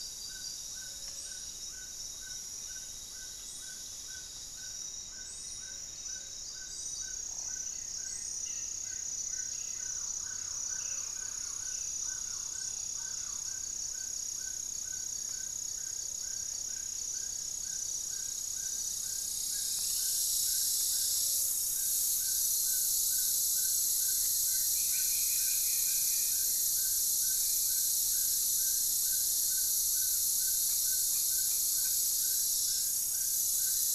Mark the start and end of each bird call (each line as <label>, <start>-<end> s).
Paradise Tanager (Tangara chilensis), 0.0-13.4 s
Gray-fronted Dove (Leptotila rufaxilla), 0.0-21.8 s
Amazonian Trogon (Trogon ramonianus), 0.0-33.9 s
Goeldi's Antbird (Akletos goeldii), 7.1-10.2 s
unidentified bird, 8.1-13.5 s
Thrush-like Wren (Campylorhynchus turdinus), 9.3-13.8 s
Buff-breasted Wren (Cantorchilus leucotis), 16.4-17.3 s
Striped Woodcreeper (Xiphorhynchus obsoletus), 18.6-21.6 s
Goeldi's Antbird (Akletos goeldii), 23.8-27.0 s
Black-faced Antthrush (Formicarius analis), 24.5-28.1 s
Black-faced Antthrush (Formicarius analis), 33.4-33.9 s